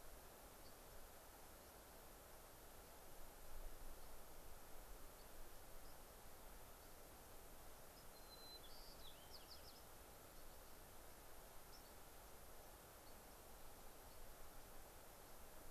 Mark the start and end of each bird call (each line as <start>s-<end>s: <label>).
0.5s-0.8s: White-crowned Sparrow (Zonotrichia leucophrys)
2.8s-3.0s: White-crowned Sparrow (Zonotrichia leucophrys)
3.9s-4.1s: White-crowned Sparrow (Zonotrichia leucophrys)
5.1s-5.3s: White-crowned Sparrow (Zonotrichia leucophrys)
5.7s-6.2s: White-crowned Sparrow (Zonotrichia leucophrys)
8.1s-9.9s: White-crowned Sparrow (Zonotrichia leucophrys)
11.6s-11.9s: White-crowned Sparrow (Zonotrichia leucophrys)
13.0s-13.2s: White-crowned Sparrow (Zonotrichia leucophrys)
14.0s-14.2s: White-crowned Sparrow (Zonotrichia leucophrys)